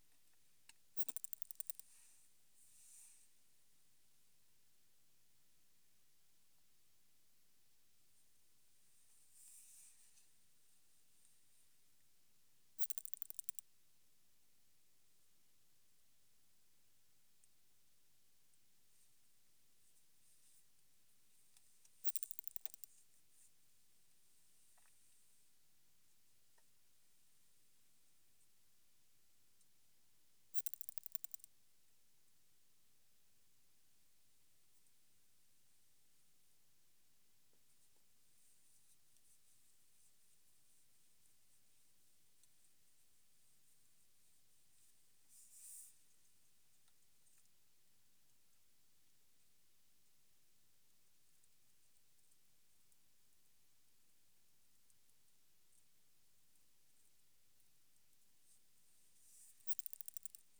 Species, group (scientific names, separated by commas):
Odontura maroccana, Orthoptera